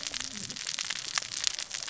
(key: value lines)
label: biophony, cascading saw
recorder: SoundTrap 600 or HydroMoth